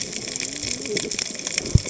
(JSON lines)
{"label": "biophony, cascading saw", "recorder": "HydroMoth"}